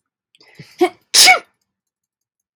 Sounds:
Sneeze